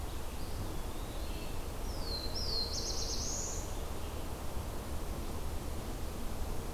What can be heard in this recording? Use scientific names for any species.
Contopus virens, Setophaga caerulescens